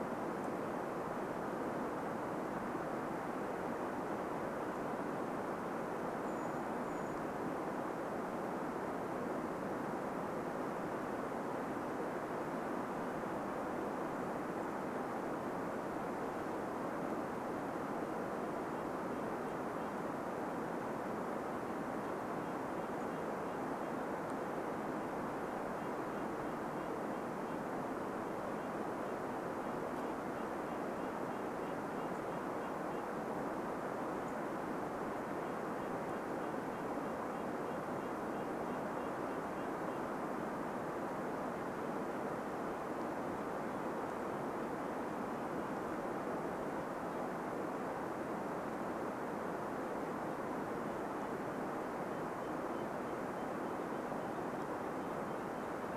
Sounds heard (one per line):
Brown Creeper call
Red-breasted Nuthatch song